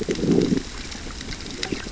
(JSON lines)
{"label": "biophony, growl", "recorder": "SoundTrap 600 or HydroMoth"}